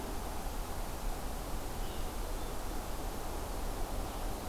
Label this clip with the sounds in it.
Red-eyed Vireo